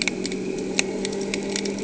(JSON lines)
{"label": "anthrophony, boat engine", "recorder": "HydroMoth"}